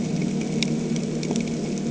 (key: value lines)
label: anthrophony, boat engine
recorder: HydroMoth